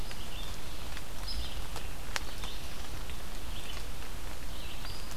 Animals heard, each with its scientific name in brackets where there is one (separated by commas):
Red-eyed Vireo (Vireo olivaceus)